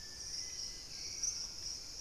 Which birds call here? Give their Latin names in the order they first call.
Pachysylvia hypoxantha, Turdus hauxwelli, Querula purpurata, Ramphastos tucanus, Piprites chloris, unidentified bird